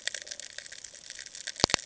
{"label": "ambient", "recorder": "HydroMoth"}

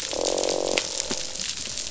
{"label": "biophony, croak", "recorder": "SoundTrap 500"}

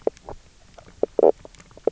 {"label": "biophony, knock croak", "recorder": "SoundTrap 300"}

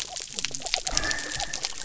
{"label": "biophony", "recorder": "SoundTrap 300"}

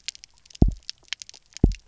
{"label": "biophony, double pulse", "recorder": "SoundTrap 300"}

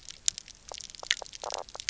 {"label": "biophony, knock croak", "recorder": "SoundTrap 300"}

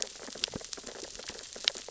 {"label": "biophony, sea urchins (Echinidae)", "recorder": "SoundTrap 600 or HydroMoth"}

